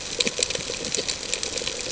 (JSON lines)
{"label": "ambient", "recorder": "HydroMoth"}